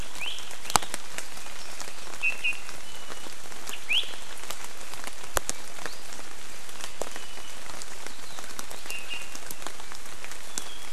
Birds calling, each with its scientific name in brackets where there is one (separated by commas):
Iiwi (Drepanis coccinea)